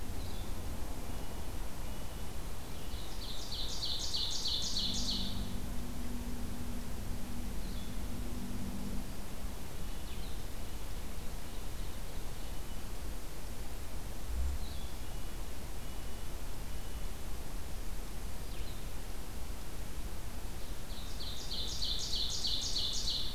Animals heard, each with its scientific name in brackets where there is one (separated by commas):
Blue-headed Vireo (Vireo solitarius), Ovenbird (Seiurus aurocapilla), Red-breasted Nuthatch (Sitta canadensis)